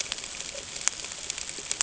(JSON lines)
{"label": "ambient", "recorder": "HydroMoth"}